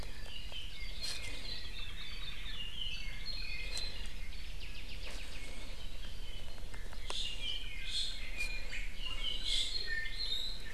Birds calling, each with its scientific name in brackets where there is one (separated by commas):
Apapane (Himatione sanguinea), Hawaii Akepa (Loxops coccineus), Iiwi (Drepanis coccinea)